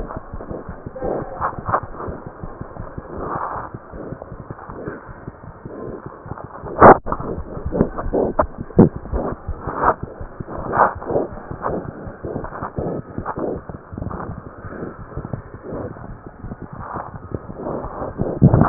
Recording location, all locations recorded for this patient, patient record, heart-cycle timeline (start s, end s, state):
aortic valve (AV)
aortic valve (AV)+mitral valve (MV)
#Age: Infant
#Sex: Female
#Height: 62.0 cm
#Weight: 7.3 kg
#Pregnancy status: False
#Murmur: Unknown
#Murmur locations: nan
#Most audible location: nan
#Systolic murmur timing: nan
#Systolic murmur shape: nan
#Systolic murmur grading: nan
#Systolic murmur pitch: nan
#Systolic murmur quality: nan
#Diastolic murmur timing: nan
#Diastolic murmur shape: nan
#Diastolic murmur grading: nan
#Diastolic murmur pitch: nan
#Diastolic murmur quality: nan
#Outcome: Normal
#Campaign: 2015 screening campaign
0.00	5.03	unannotated
5.03	5.15	S1
5.15	5.24	systole
5.24	5.31	S2
5.31	5.44	diastole
5.44	5.52	S1
5.52	5.63	systole
5.63	5.70	S2
5.70	5.85	diastole
5.85	5.93	S1
5.93	6.04	systole
6.04	6.11	S2
6.11	6.23	diastole
6.23	6.33	S1
6.33	6.42	systole
6.42	6.47	S2
6.47	6.62	diastole
6.62	6.70	S1
6.70	10.15	unannotated
10.15	10.27	S1
10.27	10.36	systole
10.36	10.44	S2
10.44	10.57	diastole
10.57	10.66	S1
10.66	11.27	unannotated
11.27	11.41	S1
11.41	11.49	systole
11.49	11.57	S2
11.57	16.06	unannotated
16.06	16.15	S1
16.15	16.24	systole
16.24	16.31	S2
16.31	16.43	diastole
16.43	16.51	S1
16.51	16.61	systole
16.61	16.66	S2
16.66	16.78	diastole
16.78	16.85	S1
16.85	18.69	unannotated